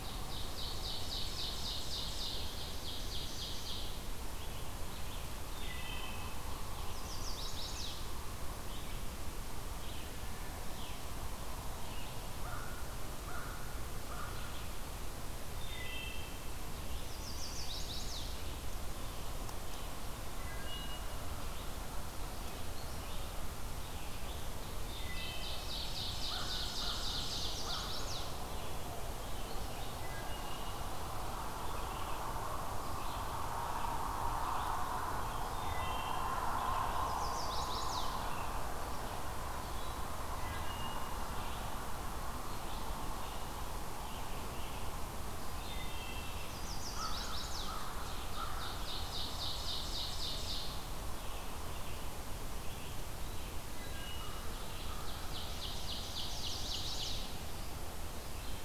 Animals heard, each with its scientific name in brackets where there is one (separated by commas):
Red-eyed Vireo (Vireo olivaceus), Chestnut-sided Warbler (Setophaga pensylvanica), Wood Thrush (Hylocichla mustelina), American Crow (Corvus brachyrhynchos), Ovenbird (Seiurus aurocapilla)